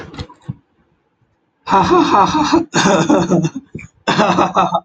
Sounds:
Laughter